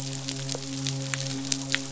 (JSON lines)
{"label": "biophony, midshipman", "recorder": "SoundTrap 500"}